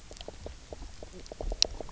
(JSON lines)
{"label": "biophony, knock croak", "recorder": "SoundTrap 300"}